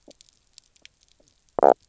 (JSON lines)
{"label": "biophony, knock croak", "recorder": "SoundTrap 300"}